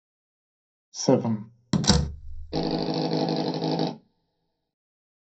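First, someone says "seven." Then a door slams. Finally, an engine can be heard.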